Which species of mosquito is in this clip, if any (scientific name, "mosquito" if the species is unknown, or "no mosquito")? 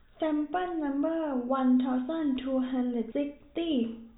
no mosquito